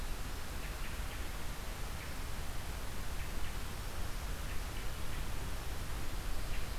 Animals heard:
forest ambience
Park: Marsh-Billings-Rockefeller National Historical Park